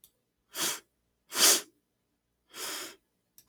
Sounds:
Sniff